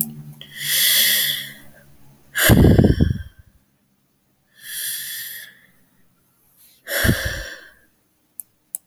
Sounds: Sigh